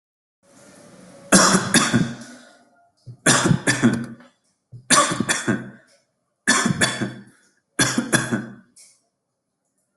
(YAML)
expert_labels:
- quality: good
  cough_type: dry
  dyspnea: false
  wheezing: false
  stridor: false
  choking: false
  congestion: false
  nothing: true
  diagnosis: obstructive lung disease
  severity: mild
age: 34
gender: male
respiratory_condition: false
fever_muscle_pain: false
status: healthy